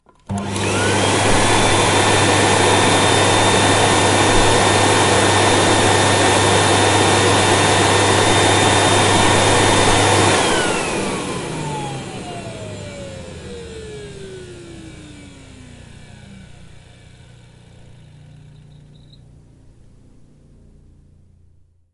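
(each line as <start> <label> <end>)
0.3 A vacuum cleaner is running. 13.3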